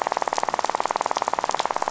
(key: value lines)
label: biophony, rattle
recorder: SoundTrap 500